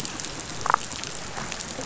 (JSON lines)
{"label": "biophony, damselfish", "recorder": "SoundTrap 500"}